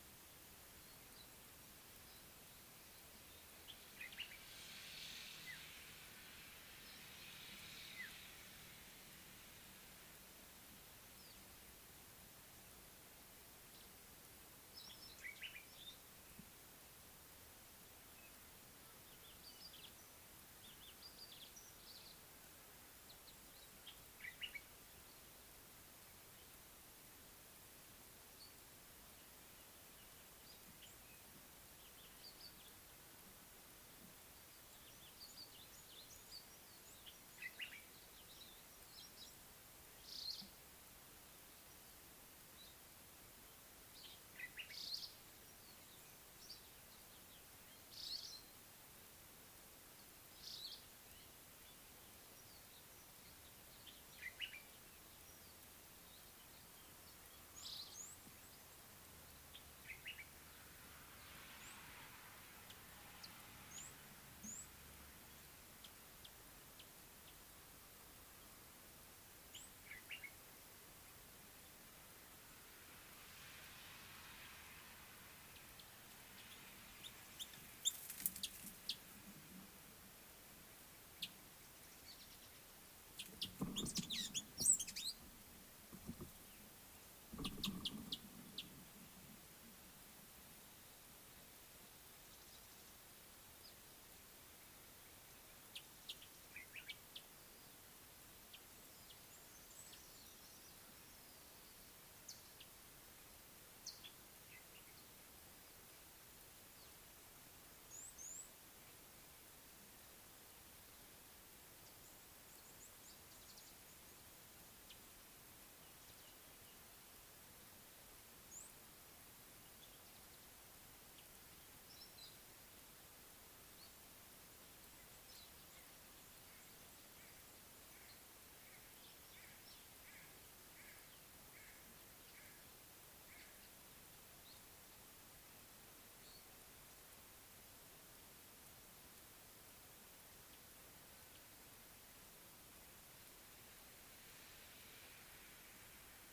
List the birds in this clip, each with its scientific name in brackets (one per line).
Meyer's Parrot (Poicephalus meyeri)
Mariqua Sunbird (Cinnyris mariquensis)
Red-cheeked Cordonbleu (Uraeginthus bengalus)
Common Bulbul (Pycnonotus barbatus)